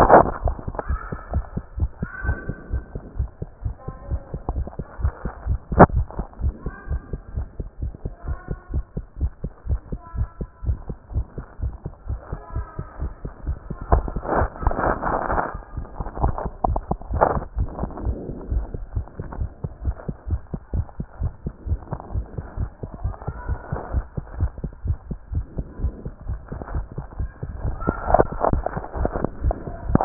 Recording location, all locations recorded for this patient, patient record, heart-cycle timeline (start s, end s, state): tricuspid valve (TV)
aortic valve (AV)+pulmonary valve (PV)+tricuspid valve (TV)+mitral valve (MV)
#Age: Child
#Sex: Male
#Height: 130.0 cm
#Weight: 27.3 kg
#Pregnancy status: False
#Murmur: Absent
#Murmur locations: nan
#Most audible location: nan
#Systolic murmur timing: nan
#Systolic murmur shape: nan
#Systolic murmur grading: nan
#Systolic murmur pitch: nan
#Systolic murmur quality: nan
#Diastolic murmur timing: nan
#Diastolic murmur shape: nan
#Diastolic murmur grading: nan
#Diastolic murmur pitch: nan
#Diastolic murmur quality: nan
#Outcome: Normal
#Campaign: 2015 screening campaign
0.00	2.11	unannotated
2.11	2.24	diastole
2.24	2.38	S1
2.38	2.46	systole
2.46	2.56	S2
2.56	2.69	diastole
2.69	2.81	S1
2.81	2.92	systole
2.92	3.02	S2
3.02	3.15	diastole
3.15	3.28	S1
3.28	3.39	systole
3.39	3.48	S2
3.48	3.63	diastole
3.63	3.73	S1
3.73	3.87	systole
3.87	3.92	S2
3.92	4.10	diastole
4.10	4.20	S1
4.20	4.32	systole
4.32	4.42	S2
4.42	4.55	diastole
4.55	4.65	S1
4.65	4.77	systole
4.77	4.84	S2
4.84	4.98	diastole
4.98	5.14	S1
5.14	5.23	systole
5.23	5.32	S2
5.32	5.44	diastole
5.44	5.60	S1
5.60	5.70	systole
5.70	5.78	S2
5.78	5.94	diastole
5.94	6.04	S1
6.04	6.17	systole
6.17	6.22	S2
6.22	6.40	diastole
6.40	6.54	S1
6.54	6.63	systole
6.63	6.74	S2
6.74	6.89	diastole
6.89	7.02	S1
7.02	7.10	systole
7.10	7.19	S2
7.19	7.34	diastole
7.34	7.46	S1
7.46	7.58	systole
7.58	7.64	S2
7.64	7.81	diastole
7.81	7.91	S1
7.91	8.04	systole
8.04	8.11	S2
8.11	8.26	diastole
8.26	8.36	S1
8.36	8.49	systole
8.49	8.57	S2
8.57	8.71	diastole
8.71	8.83	S1
8.83	8.95	systole
8.95	9.03	S2
9.03	9.19	diastole
9.19	9.31	S1
9.31	9.42	systole
9.42	9.52	S2
9.52	9.67	diastole
9.67	9.80	S1
9.80	9.91	systole
9.91	9.98	S2
9.98	10.16	diastole
10.16	10.28	S1
10.28	10.39	systole
10.39	10.48	S2
10.48	10.63	diastole
10.63	10.76	S1
10.76	10.88	systole
10.88	10.96	S2
10.96	11.14	diastole
11.14	11.26	S1
11.26	11.36	systole
11.36	11.44	S2
11.44	11.59	diastole
11.59	11.71	S1
11.71	11.84	systole
11.84	11.90	S2
11.90	12.07	diastole
12.07	12.18	S1
12.18	12.31	systole
12.31	12.39	S2
12.39	12.54	diastole
12.54	12.66	S1
12.66	12.77	systole
12.77	12.86	S2
12.86	12.99	diastole
12.99	13.14	S1
13.14	13.23	systole
13.23	13.32	S2
13.32	13.45	diastole
13.45	13.58	S1
13.58	13.68	systole
13.68	13.78	S2
13.78	13.90	diastole
13.90	14.00	S1
14.00	14.15	systole
14.15	14.22	S2
14.22	14.36	diastole
14.36	14.47	S1
14.47	14.61	systole
14.61	14.67	S2
14.67	14.82	diastole
14.82	14.89	S1
14.89	15.03	systole
15.03	15.15	S2
15.15	15.32	diastole
15.32	15.40	S1
15.40	15.54	systole
15.54	15.59	S2
15.59	15.76	diastole
15.76	15.85	S1
15.85	15.97	systole
15.97	16.06	S2
16.06	16.20	diastole
16.20	16.30	S1
16.30	16.42	systole
16.42	16.52	S2
16.52	16.66	diastole
16.66	16.80	S1
16.80	16.89	systole
16.89	16.98	S2
16.98	17.11	diastole
17.11	17.24	S1
17.24	17.34	systole
17.34	17.44	S2
17.44	17.55	diastole
17.55	17.69	S1
17.69	17.81	systole
17.81	17.90	S2
17.90	18.04	diastole
18.04	18.16	S1
18.16	18.27	systole
18.27	18.36	S2
18.36	18.48	diastole
18.48	18.65	S1
18.65	18.72	systole
18.72	18.79	S2
18.79	18.94	diastole
18.94	19.03	S1
19.03	19.18	systole
19.18	19.24	S2
19.24	19.40	diastole
19.40	19.50	S1
19.50	19.62	systole
19.62	19.71	S2
19.71	19.83	diastole
19.83	19.93	S1
19.93	20.07	systole
20.07	20.14	S2
20.14	20.28	diastole
20.28	20.39	S1
20.39	20.52	systole
20.52	20.60	S2
20.60	20.72	diastole
20.72	20.86	S1
20.86	20.99	systole
20.99	21.06	S2
21.06	21.20	diastole
21.20	21.32	S1
21.32	21.44	systole
21.44	21.54	S2
21.54	21.65	diastole
21.65	21.80	S1
21.80	21.90	systole
21.90	22.00	S2
22.00	22.13	diastole
22.13	22.26	S1
22.26	22.36	systole
22.36	22.44	S2
22.44	22.56	diastole
22.56	22.70	S1
22.70	22.81	systole
22.81	22.90	S2
22.90	23.02	diastole
23.02	23.14	S1
23.14	23.25	systole
23.25	23.36	S2
23.36	23.47	diastole
23.47	23.60	S1
23.60	23.71	systole
23.71	23.80	S2
23.80	23.91	diastole
23.91	24.06	S1
24.06	24.15	systole
24.15	24.26	S2
24.26	24.39	diastole
24.39	24.52	S1
24.52	24.61	systole
24.61	24.71	S2
24.71	24.84	diastole
24.84	24.97	S1
24.97	25.08	systole
25.08	25.18	S2
25.18	25.32	diastole
25.32	25.46	S1
25.46	25.55	systole
25.55	25.66	S2
25.66	25.80	diastole
25.80	25.93	S1
25.93	26.05	systole
26.05	26.13	S2
26.13	26.27	diastole
26.27	26.40	S1
26.40	26.50	systole
26.50	26.58	S2
26.58	26.73	diastole
26.73	26.83	S1
26.83	26.96	systole
26.96	27.05	S2
27.05	27.18	diastole
27.18	27.30	S1
27.30	30.05	unannotated